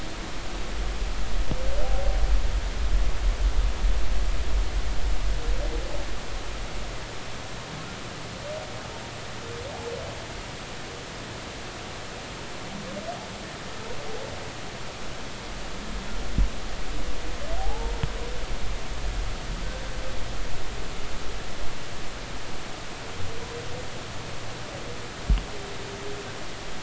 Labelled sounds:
17.6	17.9	humpback whale, 0.80 to 0.96 kHz

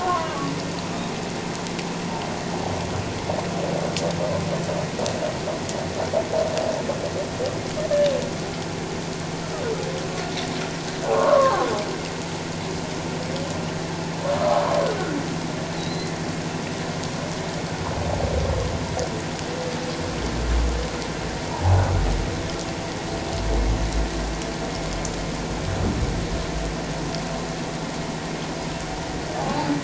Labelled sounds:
0.0	0.5	humpback whale, 0.94 to 1.5 kHz
11.1	11.6	humpback whale, 0.78 to 1.5 kHz
14.4	14.6	humpback whale, 1.0 to 1.3 kHz
15.8	16.1	humpback whale, 3.8 to 4.2 kHz
29.4	29.7	humpback whale, 0.78 to 0.97 kHz

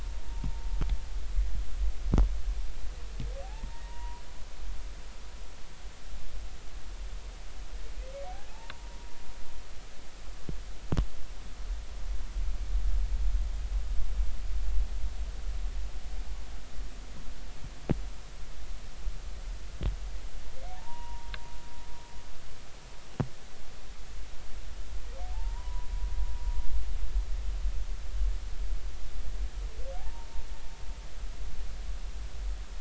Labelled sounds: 3.4	4.2	humpback whale, 0.80 to 1.1 kHz
8.5	9.0	humpback whale, 0.83 to 0.99 kHz
20.8	21.3	humpback whale, 0.86 to 1.0 kHz
25.3	25.9	humpback whale, 0.83 to 1.1 kHz
30.0	30.3	humpback whale, 0.80 to 0.99 kHz

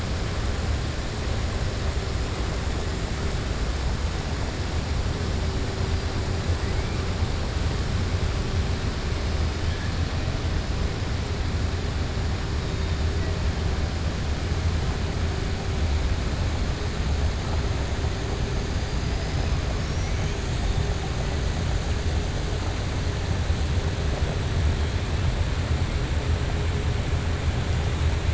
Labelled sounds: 19.7	20.4	killer whale, southern resident, 5.2 to 6.5 kHz

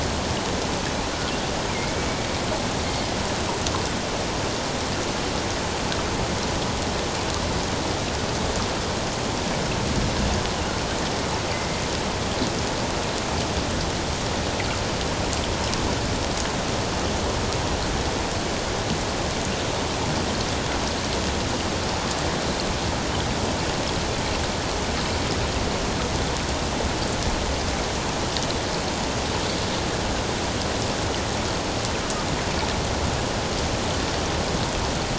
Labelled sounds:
11.5	11.8	killer whale, 2.0 to 2.2 kHz

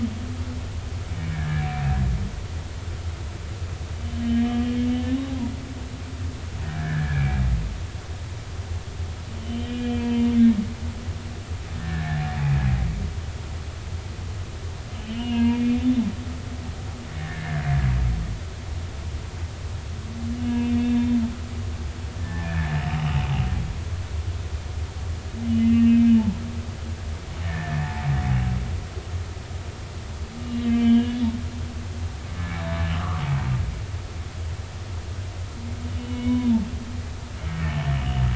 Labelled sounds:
1.3	2.0	humpback whale, 1.6 to 2.6 kHz
4.8	7.4	humpback whale, 1.4 to 3.8 kHz
9.4	10.3	humpback whale, 0.93 to 3.2 kHz
11.8	12.2	humpback whale, 1.6 to 1.9 kHz
14.9	15.8	humpback whale, 0.90 to 3.2 kHz
17.2	17.6	humpback whale, 1.5 to 1.9 kHz
20.4	21.1	humpback whale, 2.6 to 3.7 kHz
22.2	22.8	humpback whale, 1.6 to 1.8 kHz
25.5	26.1	humpback whale, 2.0 to 3.1 kHz
27.4	28.0	humpback whale, 1.7 to 1.9 kHz
30.4	31.2	humpback whale, 1.6 to 3.3 kHz
33.0	33.2	humpback whale, 1.1 to 1.4 kHz
35.9	36.5	humpback whale, 2.1 to 3.0 kHz
37.5	37.8	humpback whale, 1.7 to 1.9 kHz

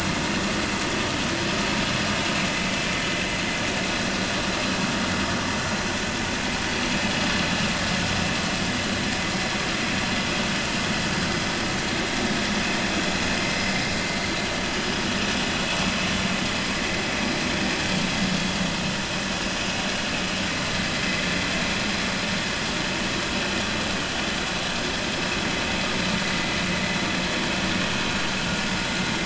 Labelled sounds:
29.0	29.2	vessel noise, 2.0 to 2.1 kHz

